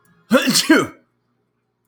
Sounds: Sneeze